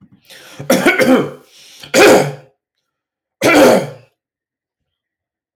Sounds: Throat clearing